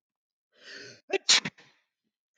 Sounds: Sneeze